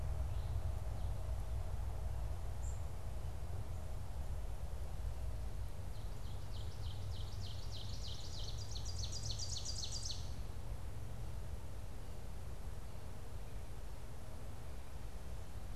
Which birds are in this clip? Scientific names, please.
unidentified bird, Seiurus aurocapilla